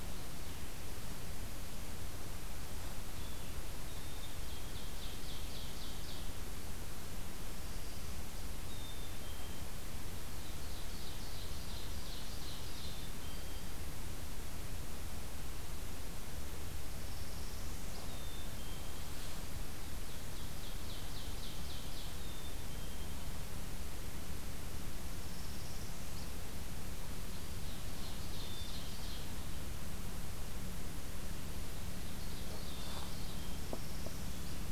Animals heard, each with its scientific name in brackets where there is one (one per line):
Black-capped Chickadee (Poecile atricapillus)
Northern Parula (Setophaga americana)
Ovenbird (Seiurus aurocapilla)